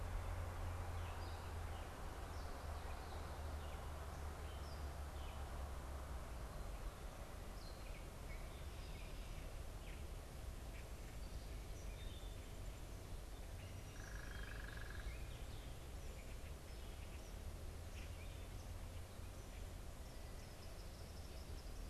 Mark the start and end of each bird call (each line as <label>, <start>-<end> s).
Gray Catbird (Dumetella carolinensis), 0.0-21.9 s
unidentified bird, 13.8-15.4 s
Eastern Kingbird (Tyrannus tyrannus), 20.2-21.9 s